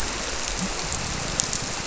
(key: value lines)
label: biophony
recorder: SoundTrap 300